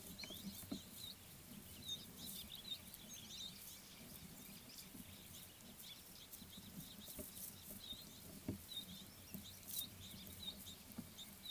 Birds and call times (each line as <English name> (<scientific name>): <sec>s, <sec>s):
Red-billed Firefinch (Lagonosticta senegala): 1.9s, 10.5s